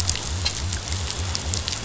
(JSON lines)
{"label": "biophony", "recorder": "SoundTrap 500"}